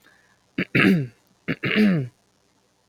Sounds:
Throat clearing